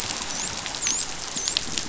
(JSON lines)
{"label": "biophony, dolphin", "recorder": "SoundTrap 500"}